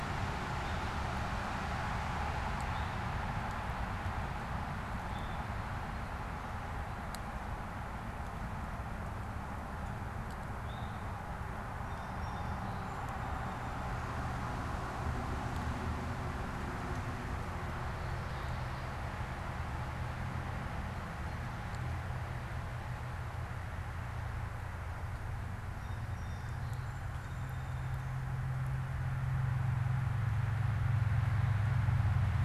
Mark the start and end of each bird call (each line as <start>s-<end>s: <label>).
0.0s-3.1s: Eastern Towhee (Pipilo erythrophthalmus)
4.9s-11.2s: Eastern Towhee (Pipilo erythrophthalmus)
11.8s-13.9s: Song Sparrow (Melospiza melodia)
25.5s-28.2s: Song Sparrow (Melospiza melodia)